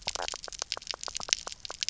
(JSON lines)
{"label": "biophony, knock croak", "recorder": "SoundTrap 300"}